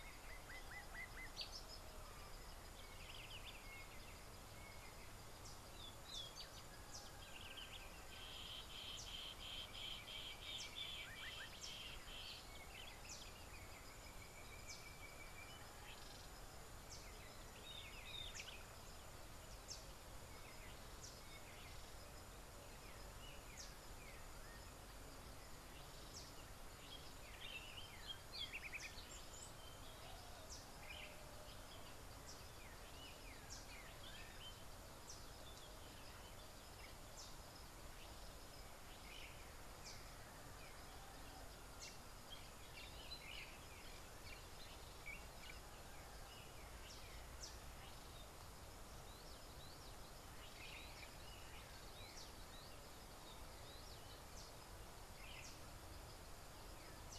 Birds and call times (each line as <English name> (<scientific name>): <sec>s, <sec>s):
Sulphur-breasted Bushshrike (Telophorus sulfureopectus): 14.4s
Collared Sunbird (Hedydipna collaris): 19.7s, 37.2s